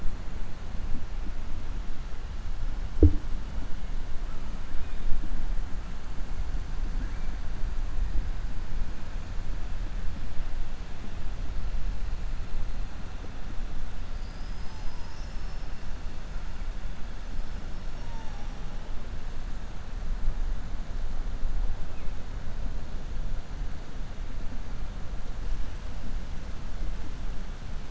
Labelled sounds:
17.7	18.5	killer whale, 4.6 to 6.4 kHz

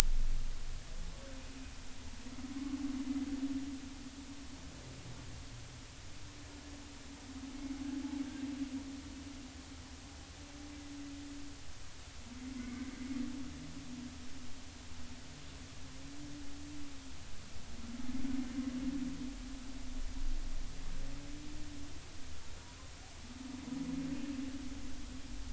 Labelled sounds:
12.6	12.9	humpback whale, 2.0 to 2.3 kHz

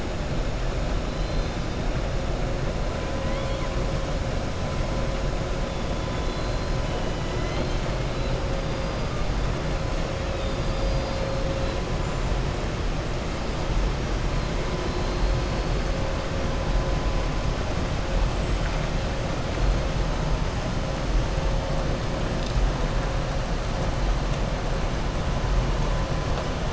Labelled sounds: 1.1	1.6	killer whale, southern resident, 3.1 to 4.8 kHz
6.1	6.7	killer whale, southern resident, 3.4 to 5.1 kHz
7.1	7.9	killer whale, southern resident, 1.4 to 4.3 kHz
10.3	11.3	killer whale, southern resident, 3.6 to 5.5 kHz

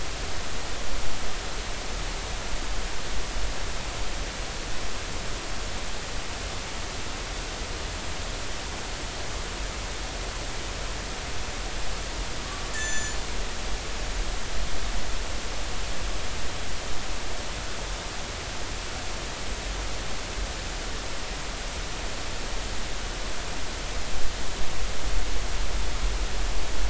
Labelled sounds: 12.4	13.2	killer whale, northern resident, G clan, 1.1 to 7.9 kHz
13.8	14.1	killer whale, northern resident, G clan, 6.0 to 6.2 kHz

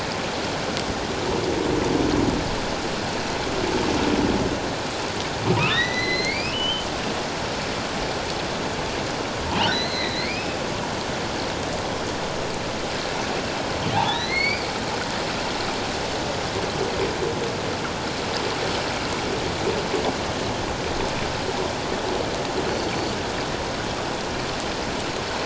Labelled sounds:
5.7	6.9	humpback whale, 1.7 to 6.1 kHz
9.7	10.6	humpback whale, 1.8 to 4.4 kHz
13.9	14.7	humpback whale, 0.78 to 5.0 kHz
22.7	23.0	humpback whale, 4.3 to 4.5 kHz

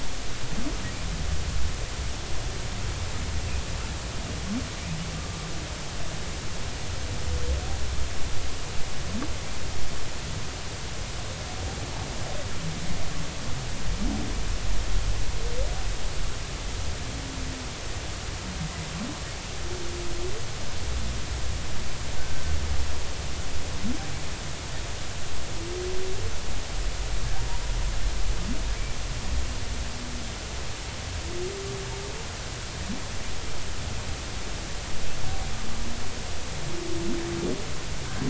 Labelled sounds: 5.1	5.4	humpback whale, 1.1 to 1.3 kHz
22.2	22.4	humpback whale, 1.5 to 1.6 kHz

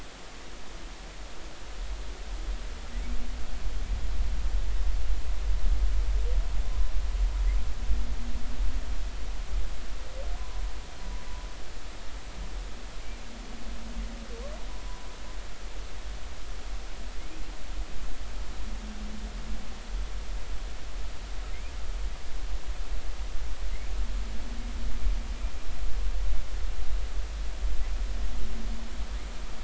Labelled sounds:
10.4	10.6	humpback whale, 0.93 to 1.1 kHz

